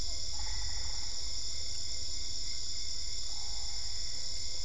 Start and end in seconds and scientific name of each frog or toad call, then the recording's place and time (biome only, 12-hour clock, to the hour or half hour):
0.0	1.4	Boana albopunctata
0.7	2.2	Boana lundii
Cerrado, 8:30pm